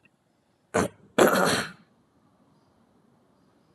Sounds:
Throat clearing